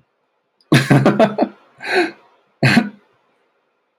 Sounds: Laughter